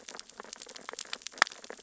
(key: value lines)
label: biophony, sea urchins (Echinidae)
recorder: SoundTrap 600 or HydroMoth